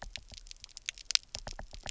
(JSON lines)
{"label": "biophony, knock", "recorder": "SoundTrap 300"}